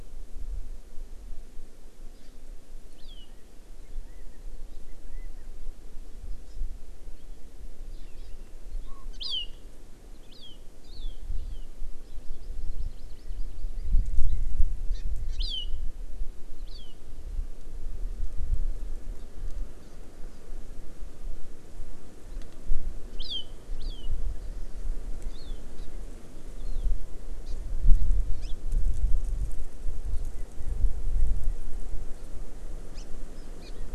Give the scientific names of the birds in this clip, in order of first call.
Callipepla californica, Chlorodrepanis virens